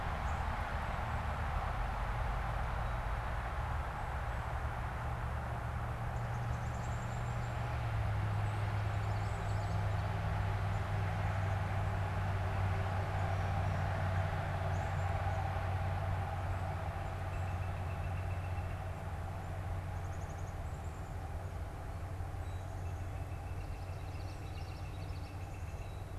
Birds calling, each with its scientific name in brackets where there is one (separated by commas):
Common Yellowthroat (Geothlypis trichas), Black-capped Chickadee (Poecile atricapillus), Northern Flicker (Colaptes auratus)